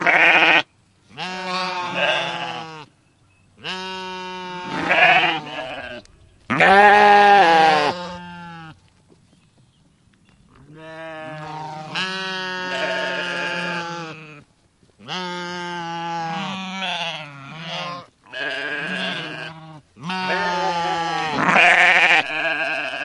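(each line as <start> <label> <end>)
0.0 Goat vocalizing with short, nasal calls in a rural outdoor setting. 23.0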